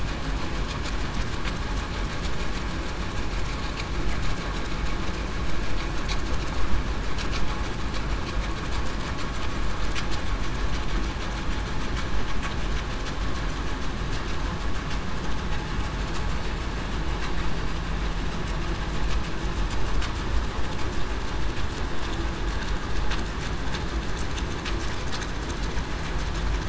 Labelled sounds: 17.3	17.7	killer whale, southern resident, 4.5 to 4.6 kHz

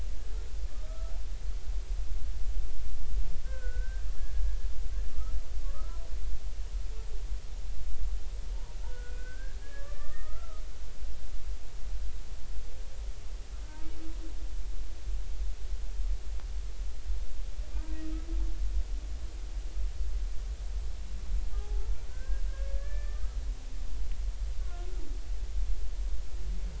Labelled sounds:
0.7	1.1	humpback whale, 1.2 to 1.4 kHz
3.5	4.5	humpback whale, 1.4 to 1.7 kHz
5.1	6.0	humpback whale, 1.1 to 1.4 kHz
8.8	10.6	humpback whale, 1.1 to 2.0 kHz
17.7	18.0	humpback whale, 1.5 to 1.6 kHz
21.6	23.4	humpback whale, 0.80 to 2.4 kHz
24.6	24.9	humpback whale, 1.3 to 1.5 kHz

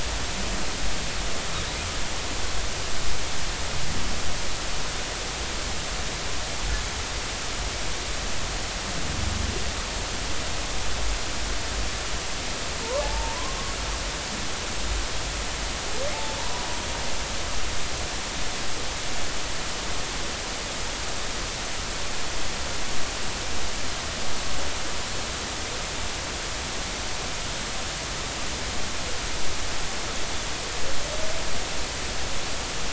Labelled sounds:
13.0	13.6	humpback whale, 0.80 to 1.2 kHz
16.1	16.7	humpback whale, 0.80 to 1.0 kHz

